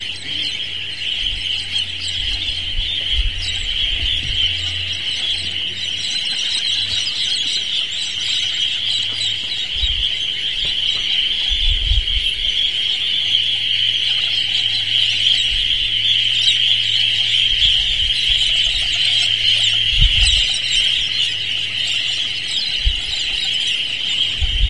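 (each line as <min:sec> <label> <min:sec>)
0:00.0 Many birds chirp rapidly and sharply nearby. 0:24.7
0:07.1 Ducks quacking distantly with faint, repetitive calls. 0:24.7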